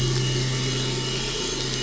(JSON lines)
{"label": "anthrophony, boat engine", "recorder": "SoundTrap 500"}